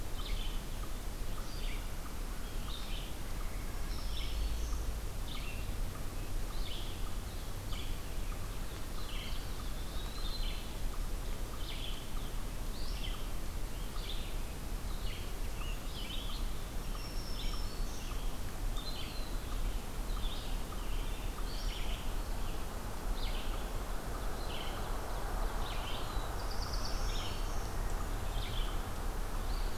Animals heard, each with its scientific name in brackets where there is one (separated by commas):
Red-eyed Vireo (Vireo olivaceus), Eastern Wood-Pewee (Contopus virens), Black-throated Green Warbler (Setophaga virens), Scarlet Tanager (Piranga olivacea), Black-throated Blue Warbler (Setophaga caerulescens)